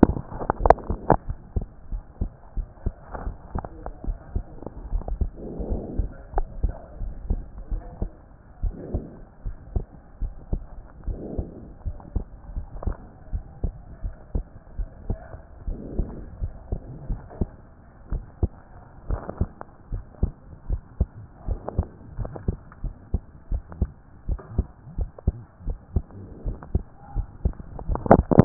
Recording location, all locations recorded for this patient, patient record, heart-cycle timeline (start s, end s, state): pulmonary valve (PV)
aortic valve (AV)+pulmonary valve (PV)+tricuspid valve (TV)+mitral valve (MV)
#Age: Child
#Sex: Male
#Height: 141.0 cm
#Weight: 37.5 kg
#Pregnancy status: False
#Murmur: Absent
#Murmur locations: nan
#Most audible location: nan
#Systolic murmur timing: nan
#Systolic murmur shape: nan
#Systolic murmur grading: nan
#Systolic murmur pitch: nan
#Systolic murmur quality: nan
#Diastolic murmur timing: nan
#Diastolic murmur shape: nan
#Diastolic murmur grading: nan
#Diastolic murmur pitch: nan
#Diastolic murmur quality: nan
#Outcome: Normal
#Campaign: 2014 screening campaign
0.00	1.36	unannotated
1.36	1.54	systole
1.54	1.64	S2
1.64	1.92	diastole
1.92	2.02	S1
2.02	2.20	systole
2.20	2.30	S2
2.30	2.56	diastole
2.56	2.66	S1
2.66	2.84	systole
2.84	2.94	S2
2.94	3.22	diastole
3.22	3.34	S1
3.34	3.54	systole
3.54	3.64	S2
3.64	4.06	diastole
4.06	4.18	S1
4.18	4.34	systole
4.34	4.44	S2
4.44	4.92	diastole
4.92	5.04	S1
5.04	5.20	systole
5.20	5.30	S2
5.30	5.68	diastole
5.68	5.80	S1
5.80	5.96	systole
5.96	6.08	S2
6.08	6.36	diastole
6.36	6.46	S1
6.46	6.62	systole
6.62	6.74	S2
6.74	7.02	diastole
7.02	7.14	S1
7.14	7.28	systole
7.28	7.40	S2
7.40	7.72	diastole
7.72	7.82	S1
7.82	8.00	systole
8.00	8.10	S2
8.10	8.62	diastole
8.62	8.74	S1
8.74	8.92	systole
8.92	9.04	S2
9.04	9.44	diastole
9.44	9.56	S1
9.56	9.74	systole
9.74	9.84	S2
9.84	10.20	diastole
10.20	10.32	S1
10.32	10.52	systole
10.52	10.62	S2
10.62	11.06	diastole
11.06	11.18	S1
11.18	11.36	systole
11.36	11.46	S2
11.46	11.86	diastole
11.86	11.96	S1
11.96	12.14	systole
12.14	12.24	S2
12.24	12.54	diastole
12.54	12.66	S1
12.66	12.84	systole
12.84	12.96	S2
12.96	13.32	diastole
13.32	13.44	S1
13.44	13.62	systole
13.62	13.74	S2
13.74	14.04	diastole
14.04	14.14	S1
14.14	14.34	systole
14.34	14.44	S2
14.44	14.78	diastole
14.78	14.88	S1
14.88	15.08	systole
15.08	15.18	S2
15.18	15.68	diastole
15.68	15.78	S1
15.78	15.96	systole
15.96	16.08	S2
16.08	16.42	diastole
16.42	16.52	S1
16.52	16.70	systole
16.70	16.80	S2
16.80	17.08	diastole
17.08	17.20	S1
17.20	17.40	systole
17.40	17.50	S2
17.50	18.12	diastole
18.12	18.24	S1
18.24	18.42	systole
18.42	18.52	S2
18.52	19.08	diastole
19.08	19.20	S1
19.20	19.40	systole
19.40	19.50	S2
19.50	19.92	diastole
19.92	20.04	S1
20.04	20.22	systole
20.22	20.32	S2
20.32	20.68	diastole
20.68	20.80	S1
20.80	20.98	systole
20.98	21.08	S2
21.08	21.48	diastole
21.48	21.60	S1
21.60	21.76	systole
21.76	21.86	S2
21.86	22.18	diastole
22.18	22.30	S1
22.30	22.46	systole
22.46	22.56	S2
22.56	22.82	diastole
22.82	22.94	S1
22.94	23.12	systole
23.12	23.22	S2
23.22	23.50	diastole
23.50	23.62	S1
23.62	23.80	systole
23.80	23.90	S2
23.90	24.28	diastole
24.28	24.40	S1
24.40	24.56	systole
24.56	24.66	S2
24.66	24.98	diastole
24.98	25.10	S1
25.10	25.26	systole
25.26	25.36	S2
25.36	25.66	diastole
25.66	25.78	S1
25.78	25.94	systole
25.94	26.04	S2
26.04	26.46	diastole
26.46	26.56	S1
26.56	26.74	systole
26.74	26.84	S2
26.84	27.16	diastole
27.16	27.26	S1
27.26	27.44	systole
27.44	27.54	S2
27.54	27.69	diastole
27.69	28.45	unannotated